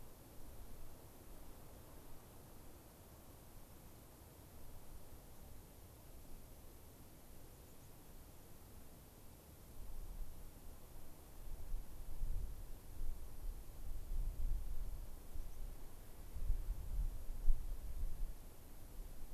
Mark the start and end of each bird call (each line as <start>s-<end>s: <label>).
7.5s-7.9s: White-crowned Sparrow (Zonotrichia leucophrys)
15.4s-15.6s: American Pipit (Anthus rubescens)